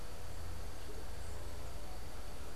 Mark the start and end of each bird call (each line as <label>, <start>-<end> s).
unidentified bird, 0.0-2.6 s